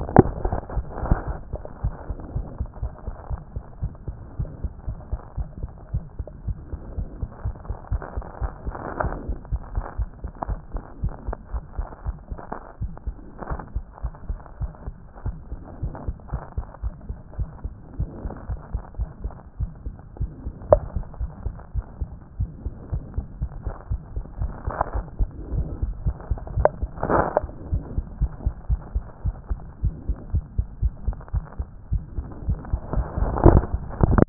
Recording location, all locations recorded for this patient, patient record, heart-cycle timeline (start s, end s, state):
aortic valve (AV)
aortic valve (AV)+mitral valve (MV)
#Age: Child
#Sex: Female
#Height: 76.0 cm
#Weight: 10.4 kg
#Pregnancy status: False
#Murmur: Present
#Murmur locations: aortic valve (AV)+mitral valve (MV)
#Most audible location: mitral valve (MV)
#Systolic murmur timing: Early-systolic
#Systolic murmur shape: Decrescendo
#Systolic murmur grading: I/VI
#Systolic murmur pitch: Low
#Systolic murmur quality: Musical
#Diastolic murmur timing: nan
#Diastolic murmur shape: nan
#Diastolic murmur grading: nan
#Diastolic murmur pitch: nan
#Diastolic murmur quality: nan
#Outcome: Normal
#Campaign: 2014 screening campaign
0.00	1.82	unannotated
1.82	1.94	S1
1.94	2.08	systole
2.08	2.16	S2
2.16	2.34	diastole
2.34	2.46	S1
2.46	2.60	systole
2.60	2.68	S2
2.68	2.82	diastole
2.82	2.92	S1
2.92	3.06	systole
3.06	3.14	S2
3.14	3.30	diastole
3.30	3.40	S1
3.40	3.54	systole
3.54	3.64	S2
3.64	3.82	diastole
3.82	3.92	S1
3.92	4.06	systole
4.06	4.16	S2
4.16	4.38	diastole
4.38	4.50	S1
4.50	4.62	systole
4.62	4.72	S2
4.72	4.88	diastole
4.88	4.98	S1
4.98	5.10	systole
5.10	5.20	S2
5.20	5.38	diastole
5.38	5.48	S1
5.48	5.60	systole
5.60	5.70	S2
5.70	5.92	diastole
5.92	6.04	S1
6.04	6.18	systole
6.18	6.26	S2
6.26	6.46	diastole
6.46	6.56	S1
6.56	6.72	systole
6.72	6.80	S2
6.80	6.96	diastole
6.96	7.08	S1
7.08	7.20	systole
7.20	7.30	S2
7.30	7.44	diastole
7.44	7.56	S1
7.56	7.68	systole
7.68	7.76	S2
7.76	7.90	diastole
7.90	8.02	S1
8.02	8.16	systole
8.16	8.24	S2
8.24	8.42	diastole
8.42	8.52	S1
8.52	8.66	systole
8.66	8.74	S2
8.74	8.97	diastole
8.97	34.29	unannotated